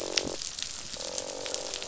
{"label": "biophony, croak", "recorder": "SoundTrap 500"}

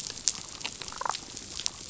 {"label": "biophony, damselfish", "recorder": "SoundTrap 500"}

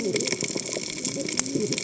{"label": "biophony, cascading saw", "recorder": "HydroMoth"}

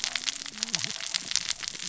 {"label": "biophony, cascading saw", "recorder": "SoundTrap 600 or HydroMoth"}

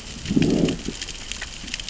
{"label": "biophony, growl", "recorder": "SoundTrap 600 or HydroMoth"}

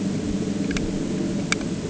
{"label": "anthrophony, boat engine", "recorder": "HydroMoth"}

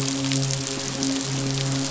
{"label": "biophony, midshipman", "recorder": "SoundTrap 500"}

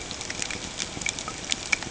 {"label": "ambient", "recorder": "HydroMoth"}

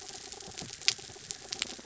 {"label": "anthrophony, mechanical", "recorder": "SoundTrap 300"}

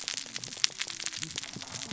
{"label": "biophony, cascading saw", "recorder": "SoundTrap 600 or HydroMoth"}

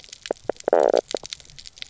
{"label": "biophony, knock croak", "recorder": "SoundTrap 300"}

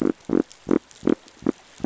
{"label": "biophony", "recorder": "SoundTrap 500"}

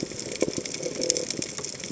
{"label": "biophony", "recorder": "HydroMoth"}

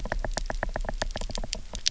{"label": "biophony, knock", "recorder": "SoundTrap 300"}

